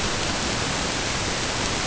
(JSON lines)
{"label": "ambient", "recorder": "HydroMoth"}